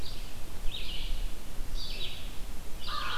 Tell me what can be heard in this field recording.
Red-eyed Vireo